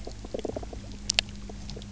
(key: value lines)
label: biophony, knock croak
recorder: SoundTrap 300